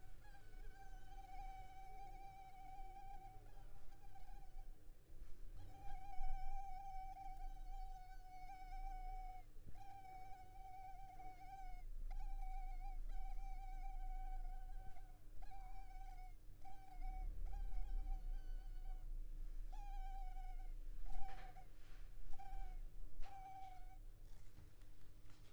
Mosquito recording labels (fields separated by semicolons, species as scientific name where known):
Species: Culex pipiens complex; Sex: female; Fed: unfed; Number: one; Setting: cup